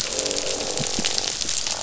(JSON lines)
{"label": "biophony, croak", "recorder": "SoundTrap 500"}